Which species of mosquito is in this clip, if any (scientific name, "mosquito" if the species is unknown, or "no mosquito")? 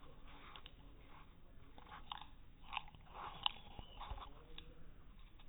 no mosquito